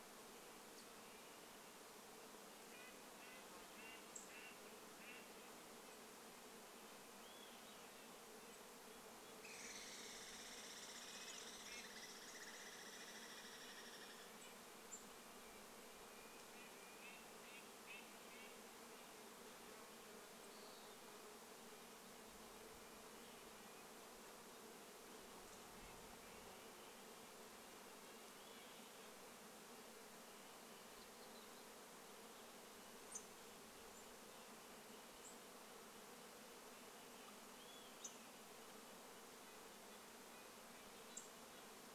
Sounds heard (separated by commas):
insect buzz, Douglas squirrel rattle, Western Wood-Pewee song, Olive-sided Flycatcher song, unidentified bird chip note, MacGillivray's Warbler song, Red-breasted Nuthatch song